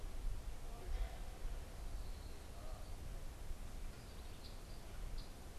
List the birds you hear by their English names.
Red-winged Blackbird